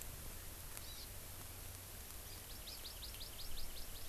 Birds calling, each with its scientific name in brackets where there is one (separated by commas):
Hawaii Amakihi (Chlorodrepanis virens)